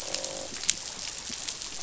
{"label": "biophony, croak", "recorder": "SoundTrap 500"}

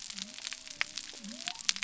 {"label": "biophony", "recorder": "SoundTrap 300"}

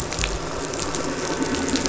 {"label": "anthrophony, boat engine", "recorder": "SoundTrap 500"}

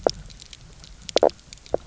{"label": "biophony, knock croak", "recorder": "SoundTrap 300"}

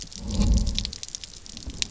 {"label": "biophony", "recorder": "SoundTrap 300"}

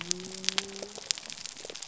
{"label": "biophony", "recorder": "SoundTrap 300"}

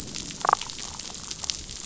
{"label": "biophony, damselfish", "recorder": "SoundTrap 500"}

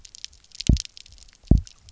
{"label": "biophony, double pulse", "recorder": "SoundTrap 300"}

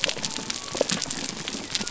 {"label": "biophony", "recorder": "SoundTrap 300"}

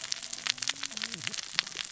{"label": "biophony, cascading saw", "recorder": "SoundTrap 600 or HydroMoth"}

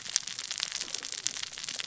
{"label": "biophony, cascading saw", "recorder": "SoundTrap 600 or HydroMoth"}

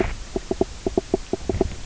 {"label": "biophony, knock croak", "recorder": "SoundTrap 300"}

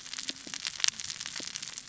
{"label": "biophony, cascading saw", "recorder": "SoundTrap 600 or HydroMoth"}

